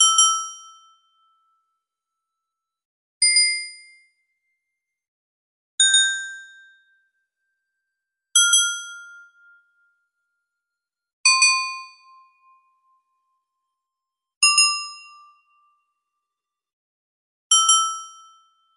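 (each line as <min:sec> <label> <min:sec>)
0:00.0 A small bell rings. 0:01.0
0:00.0 A synthesizer plays various notes with a bell preset. 0:18.7
0:02.8 A small bell is ringing. 0:03.8
0:05.4 A small bell rings. 0:06.5
0:08.1 A small bell rings. 0:09.8
0:11.0 A small bell rings. 0:12.6
0:14.1 A small bell rings. 0:15.7
0:17.4 A small bell rings. 0:18.5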